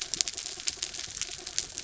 {"label": "anthrophony, mechanical", "recorder": "SoundTrap 300"}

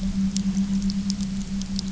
{"label": "anthrophony, boat engine", "recorder": "SoundTrap 300"}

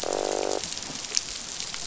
{"label": "biophony, croak", "recorder": "SoundTrap 500"}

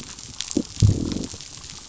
{"label": "biophony, growl", "recorder": "SoundTrap 500"}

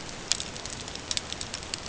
{"label": "ambient", "recorder": "HydroMoth"}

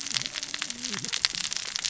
{"label": "biophony, cascading saw", "recorder": "SoundTrap 600 or HydroMoth"}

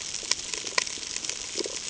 {"label": "ambient", "recorder": "HydroMoth"}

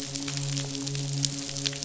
{"label": "biophony, midshipman", "recorder": "SoundTrap 500"}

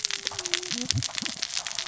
{"label": "biophony, cascading saw", "recorder": "SoundTrap 600 or HydroMoth"}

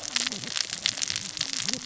{"label": "biophony, cascading saw", "recorder": "SoundTrap 600 or HydroMoth"}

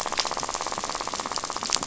{"label": "biophony, rattle", "recorder": "SoundTrap 500"}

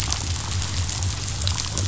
{"label": "biophony", "recorder": "SoundTrap 500"}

